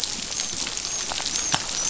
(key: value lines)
label: biophony, dolphin
recorder: SoundTrap 500